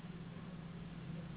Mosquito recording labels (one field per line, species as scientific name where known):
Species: Anopheles gambiae s.s.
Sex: female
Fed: unfed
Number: one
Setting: insect culture